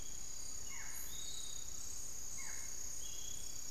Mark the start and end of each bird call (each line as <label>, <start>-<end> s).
Barred Forest-Falcon (Micrastur ruficollis), 0.0-3.7 s
Piratic Flycatcher (Legatus leucophaius), 0.0-3.7 s